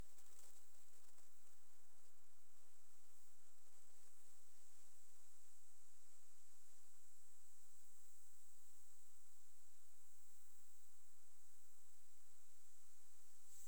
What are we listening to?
Conocephalus fuscus, an orthopteran